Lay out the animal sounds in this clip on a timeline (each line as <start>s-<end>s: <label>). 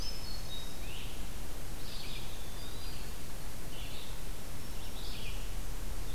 0.0s-1.1s: Hermit Thrush (Catharus guttatus)
0.0s-6.1s: Red-eyed Vireo (Vireo olivaceus)
1.7s-3.2s: Eastern Wood-Pewee (Contopus virens)